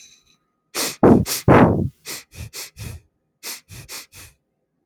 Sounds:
Sniff